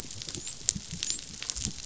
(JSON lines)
{"label": "biophony, dolphin", "recorder": "SoundTrap 500"}